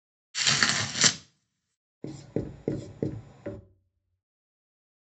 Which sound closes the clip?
writing